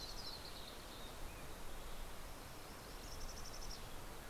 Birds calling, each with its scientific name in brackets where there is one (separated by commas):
Yellow-rumped Warbler (Setophaga coronata), Mountain Chickadee (Poecile gambeli)